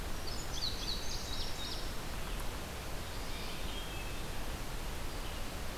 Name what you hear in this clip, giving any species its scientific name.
Vireo olivaceus, Passerina cyanea, Catharus guttatus